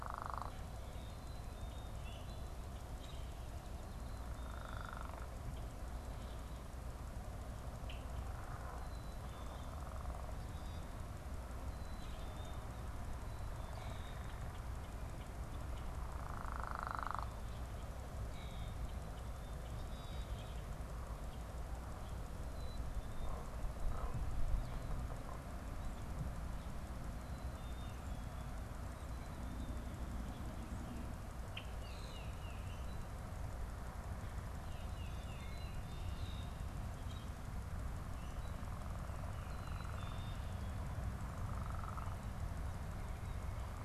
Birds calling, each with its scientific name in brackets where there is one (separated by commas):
Common Grackle (Quiscalus quiscula), Tufted Titmouse (Baeolophus bicolor), Black-capped Chickadee (Poecile atricapillus)